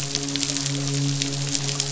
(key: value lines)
label: biophony, midshipman
recorder: SoundTrap 500